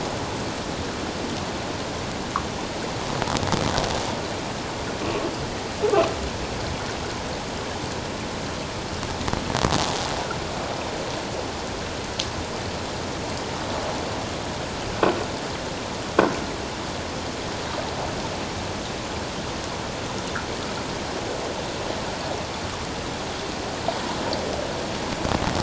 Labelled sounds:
5.0	5.3	croaking sound likely from a nearby submerged object, 1.1 to 1.2 kHz

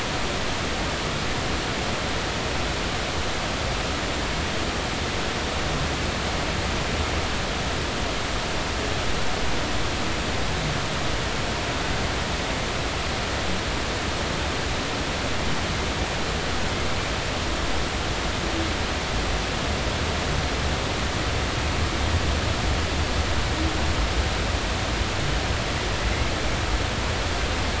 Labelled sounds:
26.0	26.3	humpback whale, 2.0 to 2.2 kHz

